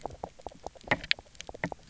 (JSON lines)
{"label": "biophony, grazing", "recorder": "SoundTrap 300"}
{"label": "biophony, knock croak", "recorder": "SoundTrap 300"}